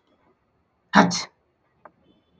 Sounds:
Sneeze